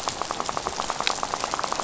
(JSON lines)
{"label": "biophony, rattle", "recorder": "SoundTrap 500"}